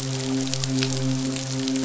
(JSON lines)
{"label": "biophony, midshipman", "recorder": "SoundTrap 500"}